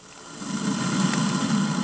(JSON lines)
{"label": "anthrophony, boat engine", "recorder": "HydroMoth"}